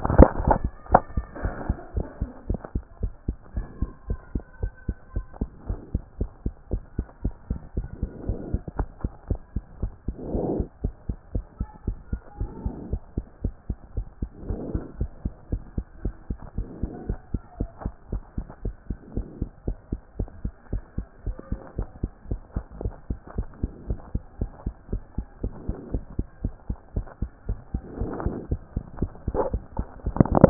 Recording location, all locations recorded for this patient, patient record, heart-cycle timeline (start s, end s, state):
mitral valve (MV)
aortic valve (AV)+pulmonary valve (PV)+tricuspid valve (TV)+mitral valve (MV)
#Age: Child
#Sex: Female
#Height: 149.0 cm
#Weight: 33.7 kg
#Pregnancy status: False
#Murmur: Absent
#Murmur locations: nan
#Most audible location: nan
#Systolic murmur timing: nan
#Systolic murmur shape: nan
#Systolic murmur grading: nan
#Systolic murmur pitch: nan
#Systolic murmur quality: nan
#Diastolic murmur timing: nan
#Diastolic murmur shape: nan
#Diastolic murmur grading: nan
#Diastolic murmur pitch: nan
#Diastolic murmur quality: nan
#Outcome: Normal
#Campaign: 2014 screening campaign
0.00	1.33	unannotated
1.33	1.42	diastole
1.42	1.54	S1
1.54	1.68	systole
1.68	1.78	S2
1.78	1.96	diastole
1.96	2.06	S1
2.06	2.20	systole
2.20	2.30	S2
2.30	2.48	diastole
2.48	2.60	S1
2.60	2.74	systole
2.74	2.84	S2
2.84	3.02	diastole
3.02	3.12	S1
3.12	3.26	systole
3.26	3.36	S2
3.36	3.56	diastole
3.56	3.66	S1
3.66	3.80	systole
3.80	3.90	S2
3.90	4.08	diastole
4.08	4.20	S1
4.20	4.34	systole
4.34	4.44	S2
4.44	4.62	diastole
4.62	4.72	S1
4.72	4.86	systole
4.86	4.96	S2
4.96	5.14	diastole
5.14	5.26	S1
5.26	5.40	systole
5.40	5.50	S2
5.50	5.68	diastole
5.68	5.80	S1
5.80	5.92	systole
5.92	6.02	S2
6.02	6.20	diastole
6.20	6.30	S1
6.30	6.44	systole
6.44	6.54	S2
6.54	6.72	diastole
6.72	6.82	S1
6.82	6.96	systole
6.96	7.06	S2
7.06	7.24	diastole
7.24	7.34	S1
7.34	7.50	systole
7.50	7.60	S2
7.60	7.76	diastole
7.76	7.88	S1
7.88	8.00	systole
8.00	8.10	S2
8.10	8.26	diastole
8.26	8.38	S1
8.38	8.52	systole
8.52	8.62	S2
8.62	8.78	diastole
8.78	8.88	S1
8.88	9.02	systole
9.02	9.12	S2
9.12	9.28	diastole
9.28	9.40	S1
9.40	9.54	systole
9.54	9.64	S2
9.64	9.82	diastole
9.82	9.92	S1
9.92	10.06	systole
10.06	10.16	S2
10.16	10.34	diastole
10.34	10.44	S1
10.44	10.58	systole
10.58	10.66	S2
10.66	10.84	diastole
10.84	10.94	S1
10.94	11.08	systole
11.08	11.16	S2
11.16	11.34	diastole
11.34	11.44	S1
11.44	11.58	systole
11.58	11.68	S2
11.68	11.86	diastole
11.86	11.98	S1
11.98	12.12	systole
12.12	12.20	S2
12.20	12.40	diastole
12.40	12.50	S1
12.50	12.64	systole
12.64	12.74	S2
12.74	12.90	diastole
12.90	13.00	S1
13.00	13.16	systole
13.16	13.26	S2
13.26	13.42	diastole
13.42	13.54	S1
13.54	13.68	systole
13.68	13.78	S2
13.78	13.96	diastole
13.96	14.06	S1
14.06	14.20	systole
14.20	14.30	S2
14.30	14.48	diastole
14.48	14.60	S1
14.60	14.72	systole
14.72	14.82	S2
14.82	14.98	diastole
14.98	15.10	S1
15.10	15.24	systole
15.24	15.32	S2
15.32	15.52	diastole
15.52	15.62	S1
15.62	15.76	systole
15.76	15.86	S2
15.86	16.04	diastole
16.04	16.14	S1
16.14	16.28	systole
16.28	16.38	S2
16.38	16.56	diastole
16.56	16.68	S1
16.68	16.82	systole
16.82	16.90	S2
16.90	17.08	diastole
17.08	17.18	S1
17.18	17.32	systole
17.32	17.42	S2
17.42	17.58	diastole
17.58	17.70	S1
17.70	17.84	systole
17.84	17.92	S2
17.92	18.12	diastole
18.12	18.22	S1
18.22	18.36	systole
18.36	18.46	S2
18.46	18.64	diastole
18.64	18.74	S1
18.74	18.88	systole
18.88	18.98	S2
18.98	19.16	diastole
19.16	19.26	S1
19.26	19.40	systole
19.40	19.50	S2
19.50	19.66	diastole
19.66	19.78	S1
19.78	19.90	systole
19.90	20.00	S2
20.00	20.18	diastole
20.18	20.30	S1
20.30	20.44	systole
20.44	20.52	S2
20.52	20.72	diastole
20.72	20.82	S1
20.82	20.96	systole
20.96	21.06	S2
21.06	21.26	diastole
21.26	21.36	S1
21.36	21.50	systole
21.50	21.60	S2
21.60	21.78	diastole
21.78	21.88	S1
21.88	22.02	systole
22.02	22.10	S2
22.10	22.30	diastole
22.30	22.40	S1
22.40	22.54	systole
22.54	22.64	S2
22.64	22.82	diastole
22.82	22.94	S1
22.94	23.08	systole
23.08	23.18	S2
23.18	23.36	diastole
23.36	23.48	S1
23.48	23.62	systole
23.62	23.72	S2
23.72	23.88	diastole
23.88	24.00	S1
24.00	24.14	systole
24.14	24.22	S2
24.22	24.40	diastole
24.40	24.50	S1
24.50	24.64	systole
24.64	24.74	S2
24.74	24.92	diastole
24.92	25.02	S1
25.02	25.16	systole
25.16	25.26	S2
25.26	25.42	diastole
25.42	25.54	S1
25.54	25.66	systole
25.66	25.76	S2
25.76	25.92	diastole
25.92	26.04	S1
26.04	26.18	systole
26.18	26.26	S2
26.26	26.42	diastole
26.42	26.54	S1
26.54	26.68	systole
26.68	26.78	S2
26.78	26.96	diastole
26.96	27.06	S1
27.06	27.20	systole
27.20	27.30	S2
27.30	27.48	diastole
27.48	27.58	S1
27.58	27.72	systole
27.72	27.82	S2
27.82	28.00	diastole
28.00	30.50	unannotated